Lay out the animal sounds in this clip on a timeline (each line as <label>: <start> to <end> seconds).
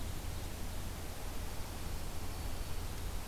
Dark-eyed Junco (Junco hyemalis): 1.3 to 3.0 seconds